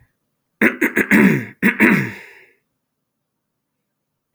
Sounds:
Throat clearing